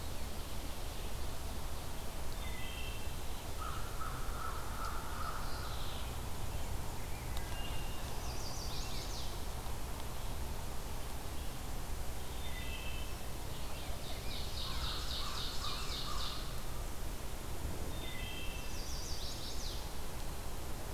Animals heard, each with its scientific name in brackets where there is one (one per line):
Wood Thrush (Hylocichla mustelina)
Chestnut-sided Warbler (Setophaga pensylvanica)
Mourning Warbler (Geothlypis philadelphia)
Ovenbird (Seiurus aurocapilla)
American Crow (Corvus brachyrhynchos)